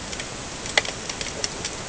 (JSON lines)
{"label": "ambient", "recorder": "HydroMoth"}